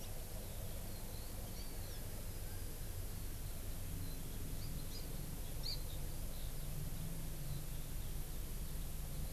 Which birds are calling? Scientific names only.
Buteo solitarius, Chlorodrepanis virens